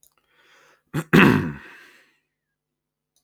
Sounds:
Throat clearing